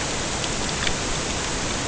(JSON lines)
{"label": "ambient", "recorder": "HydroMoth"}